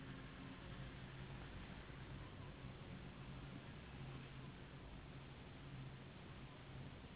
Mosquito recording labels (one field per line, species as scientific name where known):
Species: Anopheles gambiae s.s.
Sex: female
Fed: unfed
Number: one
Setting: insect culture